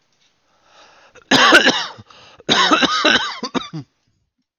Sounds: Cough